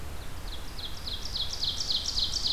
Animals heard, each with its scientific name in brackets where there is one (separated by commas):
Ovenbird (Seiurus aurocapilla)